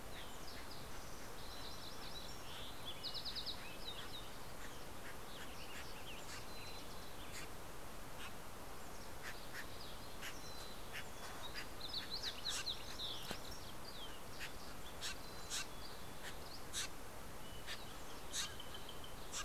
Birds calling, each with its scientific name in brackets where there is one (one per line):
MacGillivray's Warbler (Geothlypis tolmiei)
Green-tailed Towhee (Pipilo chlorurus)
Fox Sparrow (Passerella iliaca)
Steller's Jay (Cyanocitta stelleri)
Dusky Flycatcher (Empidonax oberholseri)
Western Tanager (Piranga ludoviciana)
Mountain Chickadee (Poecile gambeli)